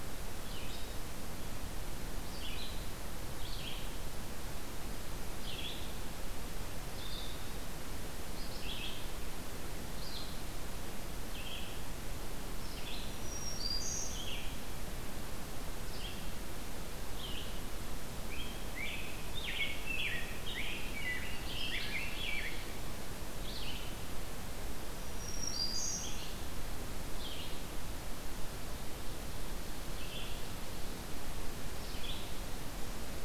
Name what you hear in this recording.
Red-eyed Vireo, Black-throated Green Warbler, Rose-breasted Grosbeak